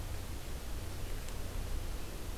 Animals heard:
forest ambience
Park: Acadia National Park